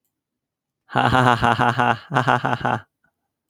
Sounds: Laughter